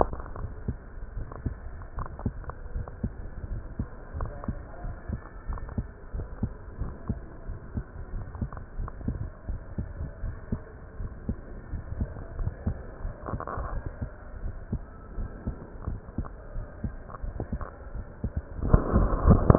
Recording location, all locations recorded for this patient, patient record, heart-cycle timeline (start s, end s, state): aortic valve (AV)
aortic valve (AV)+pulmonary valve (PV)+tricuspid valve (TV)+mitral valve (MV)
#Age: Adolescent
#Sex: Male
#Height: 170.0 cm
#Weight: 72.4 kg
#Pregnancy status: False
#Murmur: Absent
#Murmur locations: nan
#Most audible location: nan
#Systolic murmur timing: nan
#Systolic murmur shape: nan
#Systolic murmur grading: nan
#Systolic murmur pitch: nan
#Systolic murmur quality: nan
#Diastolic murmur timing: nan
#Diastolic murmur shape: nan
#Diastolic murmur grading: nan
#Diastolic murmur pitch: nan
#Diastolic murmur quality: nan
#Outcome: Abnormal
#Campaign: 2015 screening campaign
0.00	0.78	unannotated
0.78	1.14	diastole
1.14	1.28	S1
1.28	1.44	systole
1.44	1.58	S2
1.58	1.96	diastole
1.96	2.08	S1
2.08	2.24	systole
2.24	2.34	S2
2.34	2.70	diastole
2.70	2.86	S1
2.86	3.02	systole
3.02	3.14	S2
3.14	3.48	diastole
3.48	3.62	S1
3.62	3.78	systole
3.78	3.88	S2
3.88	4.16	diastole
4.16	4.32	S1
4.32	4.44	systole
4.44	4.56	S2
4.56	4.84	diastole
4.84	4.96	S1
4.96	5.08	systole
5.08	5.20	S2
5.20	5.48	diastole
5.48	5.60	S1
5.60	5.76	systole
5.76	5.86	S2
5.86	6.14	diastole
6.14	6.28	S1
6.28	6.40	systole
6.40	6.52	S2
6.52	6.80	diastole
6.80	6.94	S1
6.94	7.08	systole
7.08	7.18	S2
7.18	7.48	diastole
7.48	7.60	S1
7.60	7.74	systole
7.74	7.84	S2
7.84	8.12	diastole
8.12	8.26	S1
8.26	8.40	systole
8.40	8.50	S2
8.50	8.76	diastole
8.76	8.90	S1
8.90	9.06	systole
9.06	9.22	S2
9.22	9.48	diastole
9.48	9.62	S1
9.62	9.76	systole
9.76	9.90	S2
9.90	10.20	diastole
10.20	10.34	S1
10.34	10.50	systole
10.50	10.64	S2
10.64	10.98	diastole
10.98	11.12	S1
11.12	11.26	systole
11.26	11.38	S2
11.38	11.72	diastole
11.72	11.86	S1
11.86	12.00	systole
12.00	12.12	S2
12.12	12.38	diastole
12.38	12.54	S1
12.54	12.64	systole
12.64	12.78	S2
12.78	13.02	diastole
13.02	13.14	S1
13.14	13.32	systole
13.32	13.42	S2
13.42	13.72	diastole
13.72	13.84	S1
13.84	14.00	systole
14.00	14.10	S2
14.10	14.40	diastole
14.40	14.56	S1
14.56	14.72	systole
14.72	14.86	S2
14.86	15.16	diastole
15.16	15.30	S1
15.30	15.46	systole
15.46	15.56	S2
15.56	15.86	diastole
15.86	16.00	S1
16.00	16.16	systole
16.16	16.28	S2
16.28	16.56	diastole
16.56	16.66	S1
16.66	16.82	systole
16.82	16.96	S2
16.96	17.24	diastole
17.24	17.36	S1
17.36	19.58	unannotated